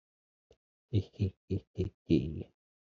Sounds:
Laughter